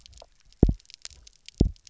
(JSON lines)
{"label": "biophony, double pulse", "recorder": "SoundTrap 300"}